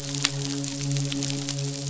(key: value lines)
label: biophony, midshipman
recorder: SoundTrap 500